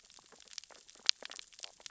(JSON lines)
{"label": "biophony, stridulation", "recorder": "SoundTrap 600 or HydroMoth"}
{"label": "biophony, sea urchins (Echinidae)", "recorder": "SoundTrap 600 or HydroMoth"}